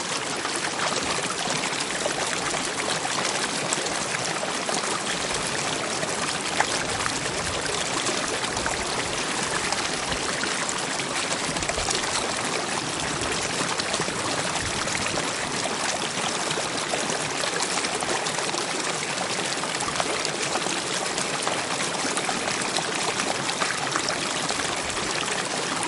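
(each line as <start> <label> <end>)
0.0 Water splashes and streams continuously and loudly between the rocks. 25.9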